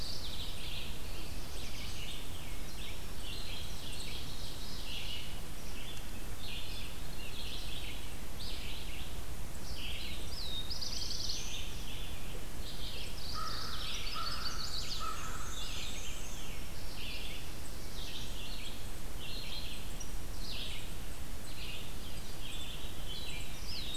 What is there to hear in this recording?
Mourning Warbler, Red-eyed Vireo, Black-throated Blue Warbler, Black-throated Green Warbler, Ovenbird, Veery, American Crow, Chestnut-sided Warbler, Black-and-white Warbler